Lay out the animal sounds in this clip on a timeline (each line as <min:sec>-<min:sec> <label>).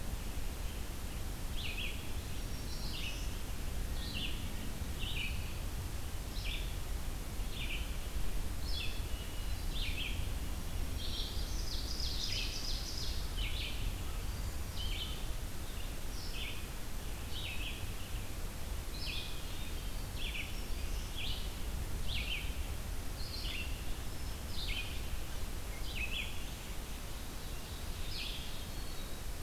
0:00.0-0:28.5 Red-eyed Vireo (Vireo olivaceus)
0:02.1-0:03.3 Black-throated Green Warbler (Setophaga virens)
0:08.7-0:10.0 Hermit Thrush (Catharus guttatus)
0:10.4-0:11.8 Black-throated Green Warbler (Setophaga virens)
0:11.0-0:13.2 Ovenbird (Seiurus aurocapilla)
0:18.9-0:20.0 Hermit Thrush (Catharus guttatus)
0:20.0-0:21.2 Black-throated Green Warbler (Setophaga virens)
0:23.8-0:24.6 Hermit Thrush (Catharus guttatus)
0:26.9-0:28.7 Ovenbird (Seiurus aurocapilla)
0:28.4-0:29.4 Hermit Thrush (Catharus guttatus)